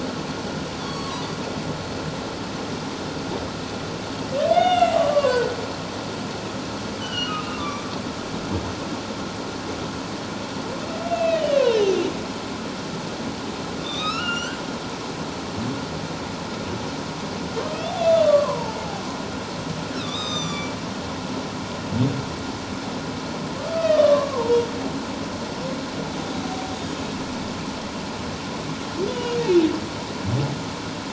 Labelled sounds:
0.8	1.3	humpback whale, 0.94 to 4.6 kHz
4.5	5.5	humpback whale, 0.88 to 7.9 kHz
7.0	8.0	humpback whale, 1.1 to 3.2 kHz
11.0	12.0	humpback whale, 2.4 to 3.2 kHz
13.8	14.6	humpback whale, 1.1 to 7.8 kHz
18.2	18.8	humpback whale, 0.84 to 1.2 kHz
20.0	20.7	humpback whale, 1.1 to 7.6 kHz
23.7	24.7	humpback whale, 0.88 to 4.6 kHz
29.1	29.4	humpback whale, 2.8 to 3.0 kHz

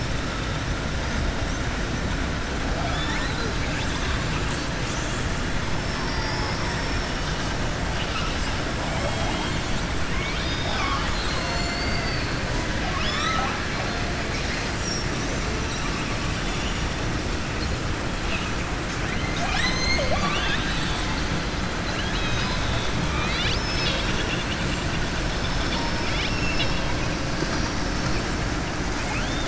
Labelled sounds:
7.9	8.5	killer whale, southern resident, 1.3 to 5.3 kHz
12.8	13.6	killer whale, southern resident, 0.63 to 7.5 kHz
23.0	24.6	killer whale, southern resident, 1.2 to 5.8 kHz
25.3	26.9	killer whale, southern resident, 2.1 to 5.5 kHz
29.0	29.4	killer whale, southern resident, 1.4 to 3.7 kHz

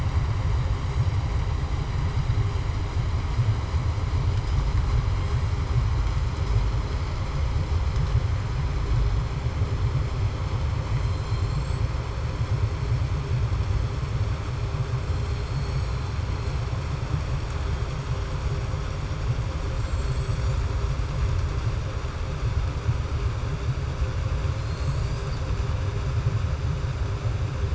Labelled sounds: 11.0	11.8	killer whale, southern resident, 3.2 to 7.8 kHz
15.3	16.1	killer whale, southern resident, 3.5 to 4.5 kHz

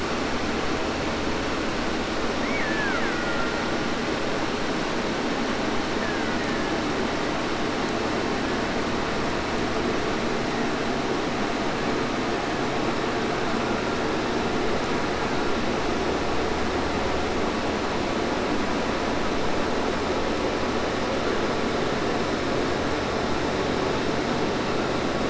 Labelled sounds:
2.4	3.9	killer whale, Bigg's (transient), call T04, 0.10 to 3.0 kHz
5.8	7.0	killer whale, Bigg's (transient), 0.60 to 2.7 kHz

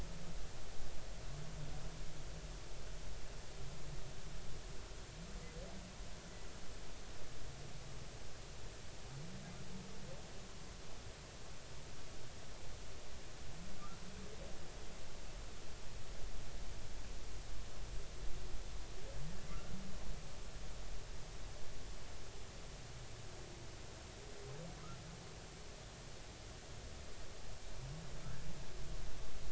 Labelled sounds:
19.5	19.7	humpback whale, 1.1 to 1.5 kHz

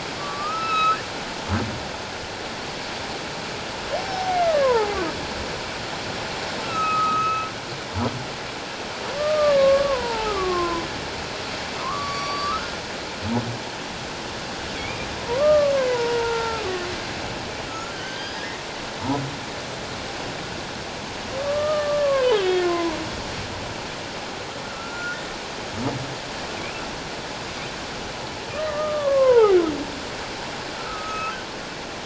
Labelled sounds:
4.0	5.0	humpback whale, 0.78 to 5.5 kHz
6.6	7.5	humpback whale, 1.2 to 2.7 kHz
9.2	10.9	humpback whale, 0.78 to 1.5 kHz
11.8	12.8	humpback whale, 0.94 to 4.7 kHz
14.8	16.6	humpback whale, 0.84 to 2.5 kHz
17.7	18.6	humpback whale, 1.2 to 5.0 kHz
21.4	23.0	humpback whale, 0.91 to 3.6 kHz
24.6	25.2	humpback whale, 1.3 to 7.2 kHz
28.5	29.6	humpback whale, 0.78 to 2.0 kHz
30.7	31.4	humpback whale, 1.1 to 6.5 kHz

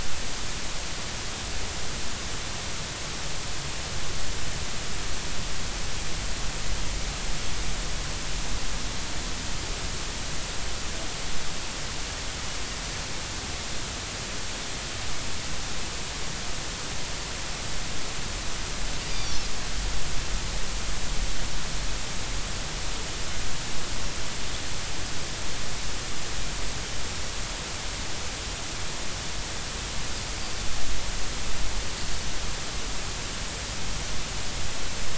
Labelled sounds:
19.1	19.4	Pacific white-sided dolphin, 3.4 to 4.8 kHz

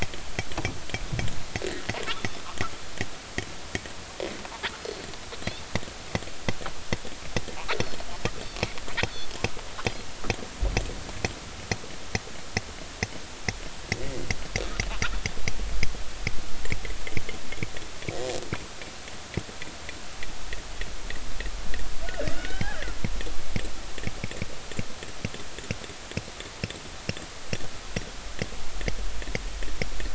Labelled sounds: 4.8	5.0	killer whale, northern resident, G clan, 4.2 to 4.4 kHz
7.8	8.1	killer whale, northern resident, G clan, 4.2 to 4.5 kHz
22.3	22.9	killer whale, northern resident, G clan, 1.2 to 3.1 kHz

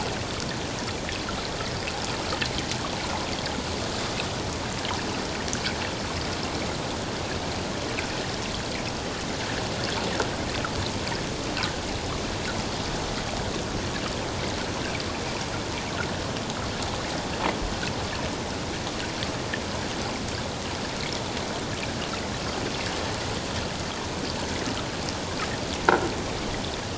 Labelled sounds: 11.6	11.8	water noise, 1.4 to 1.7 kHz

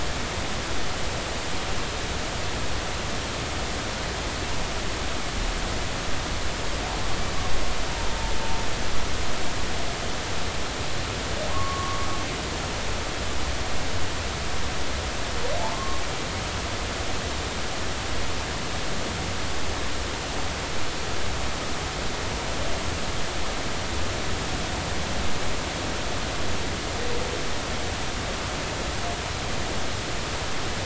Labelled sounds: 11.5	12.1	humpback whale, 0.96 to 1.2 kHz
15.7	16.0	humpback whale, 1.0 to 1.2 kHz

